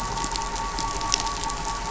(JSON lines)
{"label": "anthrophony, boat engine", "recorder": "SoundTrap 500"}